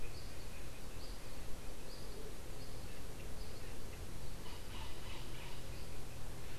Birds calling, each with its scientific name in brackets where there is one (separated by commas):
Andean Motmot (Momotus aequatorialis), Bronze-winged Parrot (Pionus chalcopterus)